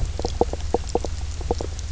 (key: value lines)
label: biophony, knock croak
recorder: SoundTrap 300